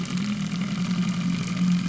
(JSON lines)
{"label": "anthrophony, boat engine", "recorder": "SoundTrap 300"}